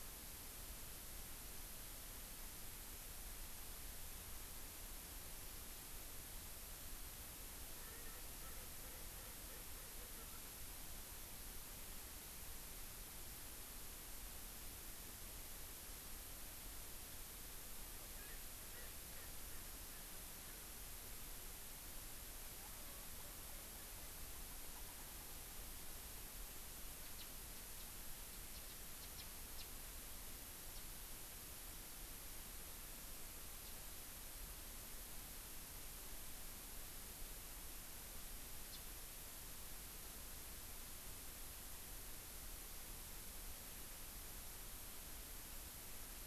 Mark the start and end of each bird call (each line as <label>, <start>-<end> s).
Erckel's Francolin (Pternistis erckelii), 7.8-10.6 s
Erckel's Francolin (Pternistis erckelii), 18.2-20.6 s
House Finch (Haemorhous mexicanus), 27.0-27.3 s
House Finch (Haemorhous mexicanus), 28.7-29.3 s
House Finch (Haemorhous mexicanus), 29.6-29.7 s
House Finch (Haemorhous mexicanus), 38.7-38.8 s